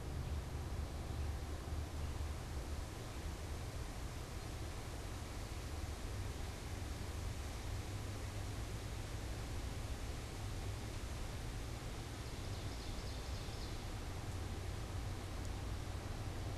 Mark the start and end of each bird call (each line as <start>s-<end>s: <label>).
0.0s-2.6s: unidentified bird
11.9s-14.0s: Ovenbird (Seiurus aurocapilla)